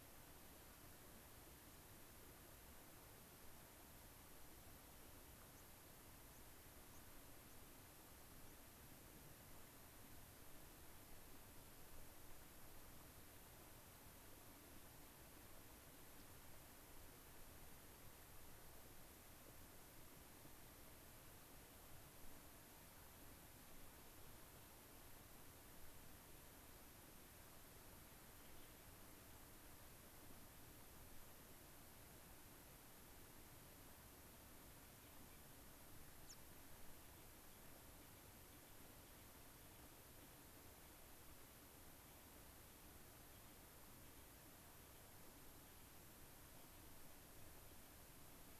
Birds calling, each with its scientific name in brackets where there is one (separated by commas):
unidentified bird, White-crowned Sparrow (Zonotrichia leucophrys)